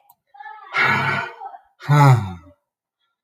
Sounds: Sigh